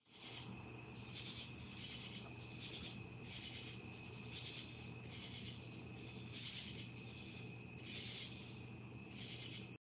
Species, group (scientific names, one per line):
Pterophylla camellifolia
Orthoptera